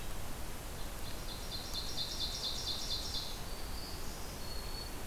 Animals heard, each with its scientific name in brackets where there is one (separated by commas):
Black-throated Green Warbler (Setophaga virens), Ovenbird (Seiurus aurocapilla)